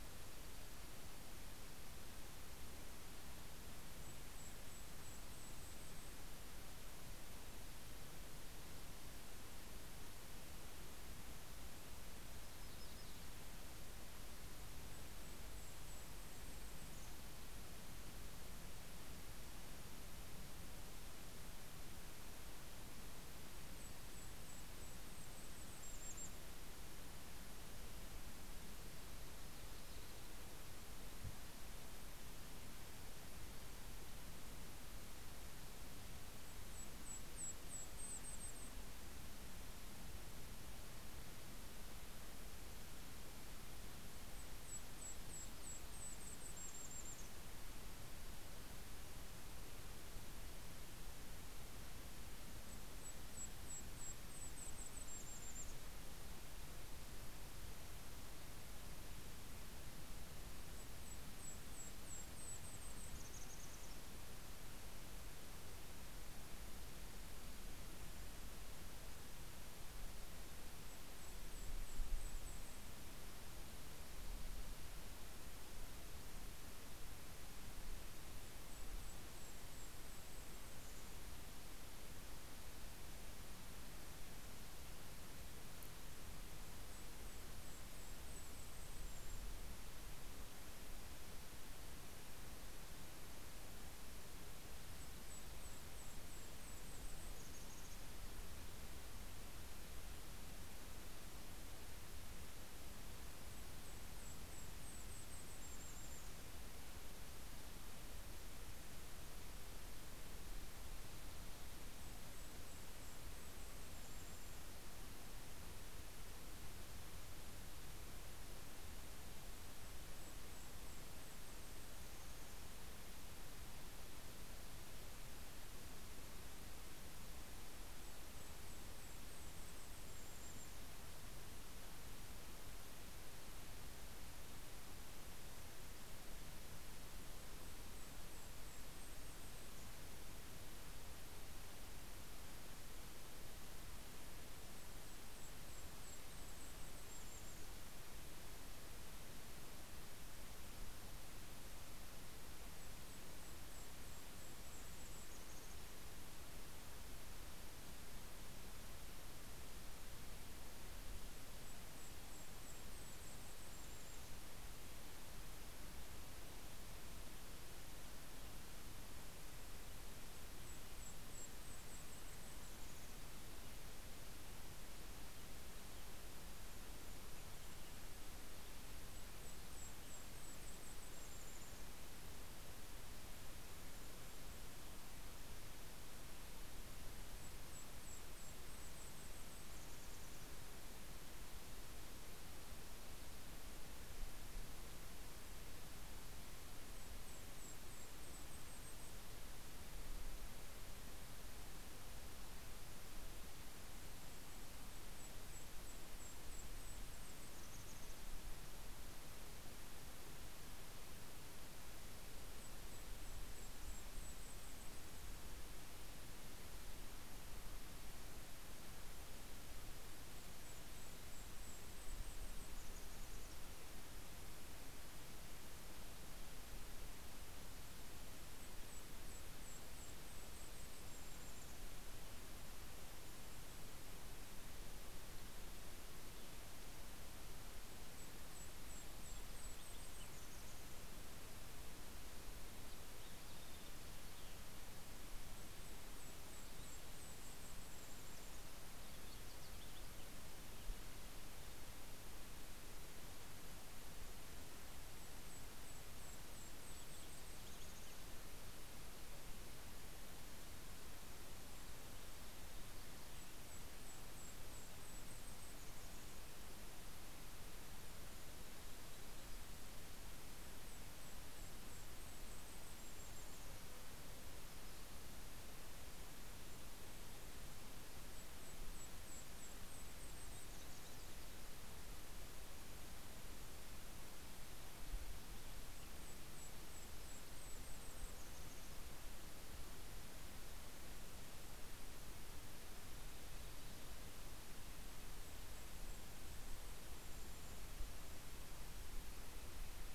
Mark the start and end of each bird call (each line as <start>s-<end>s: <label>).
3.2s-7.3s: Golden-crowned Kinglet (Regulus satrapa)
11.6s-13.8s: Yellow-rumped Warbler (Setophaga coronata)
13.9s-18.3s: Golden-crowned Kinglet (Regulus satrapa)
23.9s-27.9s: Golden-crowned Kinglet (Regulus satrapa)
35.6s-40.4s: Golden-crowned Kinglet (Regulus satrapa)
44.2s-48.1s: Golden-crowned Kinglet (Regulus satrapa)
52.3s-57.3s: Golden-crowned Kinglet (Regulus satrapa)
60.1s-65.0s: Golden-crowned Kinglet (Regulus satrapa)
70.3s-73.9s: Golden-crowned Kinglet (Regulus satrapa)
77.9s-82.0s: Golden-crowned Kinglet (Regulus satrapa)
86.6s-90.3s: Golden-crowned Kinglet (Regulus satrapa)
94.9s-98.8s: Golden-crowned Kinglet (Regulus satrapa)
103.3s-106.9s: Golden-crowned Kinglet (Regulus satrapa)
111.6s-115.1s: Golden-crowned Kinglet (Regulus satrapa)
119.6s-122.8s: Golden-crowned Kinglet (Regulus satrapa)
127.1s-131.8s: Golden-crowned Kinglet (Regulus satrapa)
136.7s-140.3s: Golden-crowned Kinglet (Regulus satrapa)
144.3s-148.6s: Golden-crowned Kinglet (Regulus satrapa)
151.9s-156.5s: Golden-crowned Kinglet (Regulus satrapa)
160.1s-165.1s: Golden-crowned Kinglet (Regulus satrapa)
169.3s-173.6s: Golden-crowned Kinglet (Regulus satrapa)
178.4s-182.3s: Golden-crowned Kinglet (Regulus satrapa)
186.4s-191.1s: Golden-crowned Kinglet (Regulus satrapa)
196.1s-200.4s: Golden-crowned Kinglet (Regulus satrapa)
204.7s-208.3s: Golden-crowned Kinglet (Regulus satrapa)
212.1s-216.3s: Golden-crowned Kinglet (Regulus satrapa)
219.8s-224.5s: Golden-crowned Kinglet (Regulus satrapa)
228.5s-232.3s: Golden-crowned Kinglet (Regulus satrapa)
237.7s-241.9s: Golden-crowned Kinglet (Regulus satrapa)
238.6s-252.1s: Vesper Sparrow (Pooecetes gramineus)
245.7s-248.9s: Golden-crowned Kinglet (Regulus satrapa)
254.6s-258.8s: Golden-crowned Kinglet (Regulus satrapa)
255.7s-260.1s: Vesper Sparrow (Pooecetes gramineus)
260.3s-266.0s: Golden-crowned Kinglet (Regulus satrapa)
268.3s-274.2s: Golden-crowned Kinglet (Regulus satrapa)
277.6s-281.8s: Golden-crowned Kinglet (Regulus satrapa)
285.6s-289.8s: Golden-crowned Kinglet (Regulus satrapa)
292.0s-300.1s: Red-breasted Nuthatch (Sitta canadensis)
294.7s-298.8s: Golden-crowned Kinglet (Regulus satrapa)